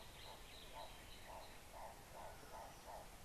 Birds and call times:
Hartlaub's Turaco (Tauraco hartlaubi): 1.9s

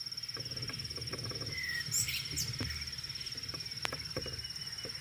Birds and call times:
African Bare-eyed Thrush (Turdus tephronotus): 1.7s

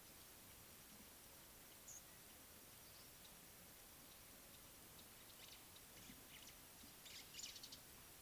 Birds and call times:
Speckle-fronted Weaver (Sporopipes frontalis): 2.0s
White-browed Sparrow-Weaver (Plocepasser mahali): 7.2s

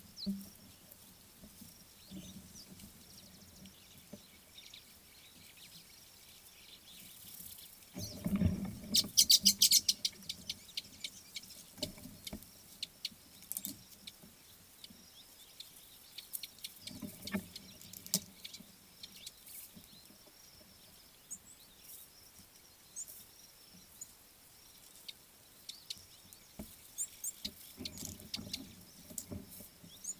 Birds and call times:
Chestnut Weaver (Ploceus rubiginosus): 9.4s
Red-cheeked Cordonbleu (Uraeginthus bengalus): 23.0s, 27.0s

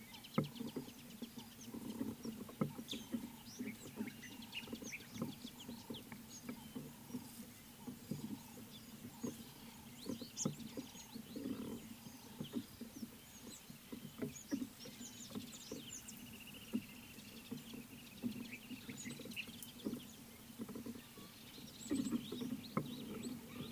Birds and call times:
Speckled Mousebird (Colius striatus): 10.4s, 22.0s
Green Woodhoopoe (Phoeniculus purpureus): 16.6s

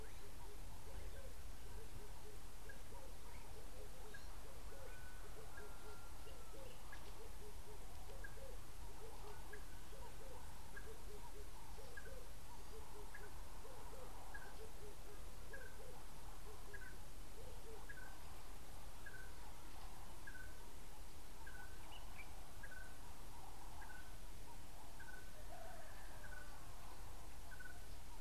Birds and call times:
Red-eyed Dove (Streptopelia semitorquata): 2.3s
Red-fronted Tinkerbird (Pogoniulus pusillus): 14.4s, 20.3s, 25.1s

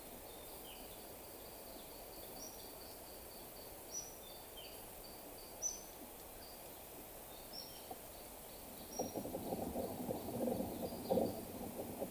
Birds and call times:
Gray Apalis (Apalis cinerea): 3.0s
Cinnamon-chested Bee-eater (Merops oreobates): 3.9s
Waller's Starling (Onychognathus walleri): 7.3s

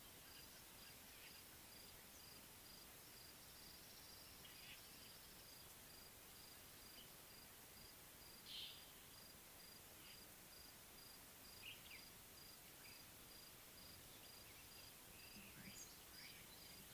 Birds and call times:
Slate-colored Boubou (Laniarius funebris): 8.6s
Common Bulbul (Pycnonotus barbatus): 11.7s

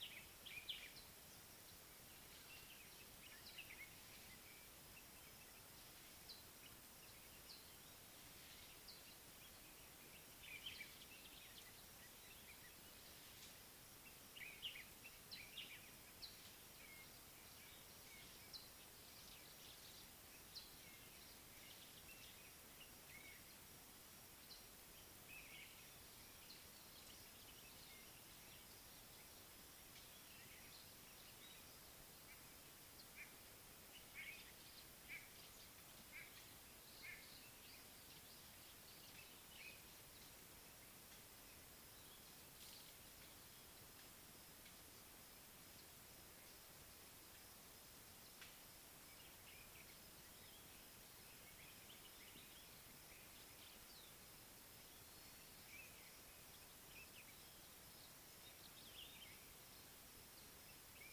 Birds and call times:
Mariqua Sunbird (Cinnyris mariquensis): 7.4s, 18.4s
Common Bulbul (Pycnonotus barbatus): 10.5s, 14.5s, 25.3s, 59.0s
White-bellied Go-away-bird (Corythaixoides leucogaster): 35.1s

